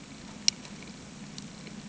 {"label": "anthrophony, boat engine", "recorder": "HydroMoth"}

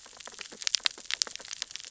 {"label": "biophony, sea urchins (Echinidae)", "recorder": "SoundTrap 600 or HydroMoth"}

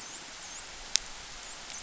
{"label": "biophony, dolphin", "recorder": "SoundTrap 500"}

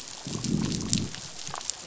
{"label": "biophony, growl", "recorder": "SoundTrap 500"}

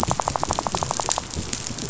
{"label": "biophony, rattle", "recorder": "SoundTrap 500"}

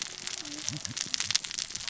{"label": "biophony, cascading saw", "recorder": "SoundTrap 600 or HydroMoth"}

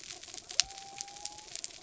{"label": "biophony", "recorder": "SoundTrap 300"}
{"label": "anthrophony, mechanical", "recorder": "SoundTrap 300"}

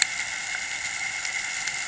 {"label": "anthrophony, boat engine", "recorder": "HydroMoth"}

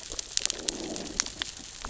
{"label": "biophony, growl", "recorder": "SoundTrap 600 or HydroMoth"}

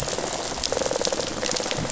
{"label": "biophony, rattle response", "recorder": "SoundTrap 500"}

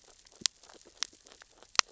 {"label": "biophony, grazing", "recorder": "SoundTrap 600 or HydroMoth"}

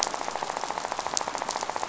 {"label": "biophony, rattle", "recorder": "SoundTrap 500"}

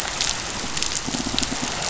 {"label": "biophony", "recorder": "SoundTrap 500"}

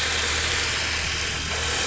{"label": "anthrophony, boat engine", "recorder": "SoundTrap 500"}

